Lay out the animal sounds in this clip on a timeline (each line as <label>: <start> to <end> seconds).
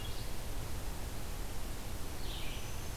Red-eyed Vireo (Vireo olivaceus): 0.0 to 3.0 seconds
Black-throated Green Warbler (Setophaga virens): 2.4 to 3.0 seconds